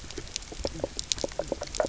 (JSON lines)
{"label": "biophony, knock croak", "recorder": "SoundTrap 300"}